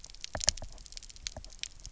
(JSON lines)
{"label": "biophony, knock", "recorder": "SoundTrap 300"}